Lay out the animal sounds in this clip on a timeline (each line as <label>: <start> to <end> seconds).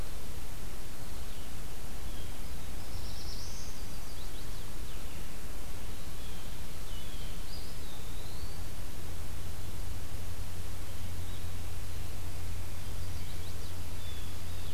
Blue-headed Vireo (Vireo solitarius): 0.0 to 5.3 seconds
Black-throated Blue Warbler (Setophaga caerulescens): 2.0 to 3.7 seconds
Chestnut-sided Warbler (Setophaga pensylvanica): 3.5 to 4.8 seconds
Blue Jay (Cyanocitta cristata): 6.0 to 7.4 seconds
Eastern Wood-Pewee (Contopus virens): 7.4 to 8.8 seconds
Blue-headed Vireo (Vireo solitarius): 11.0 to 14.7 seconds
Chestnut-sided Warbler (Setophaga pensylvanica): 12.5 to 13.9 seconds
Blue Jay (Cyanocitta cristata): 13.7 to 14.7 seconds